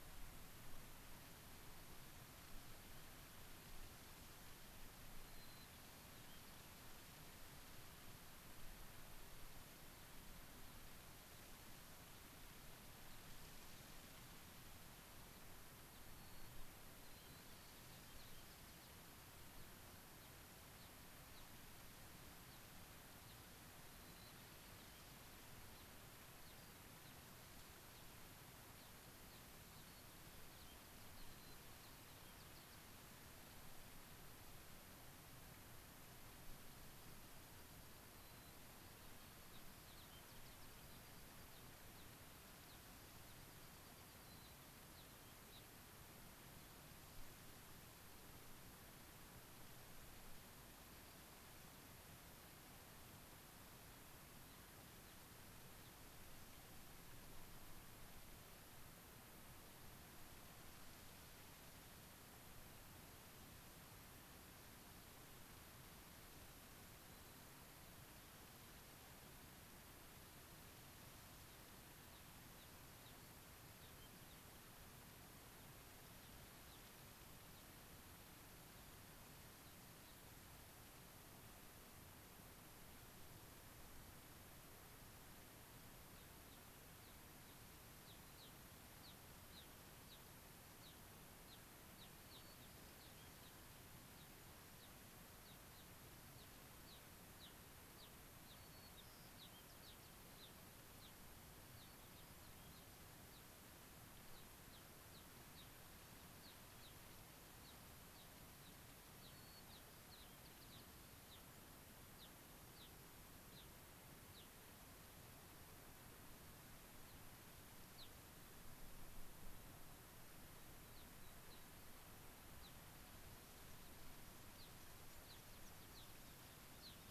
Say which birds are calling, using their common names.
White-crowned Sparrow, Gray-crowned Rosy-Finch, unidentified bird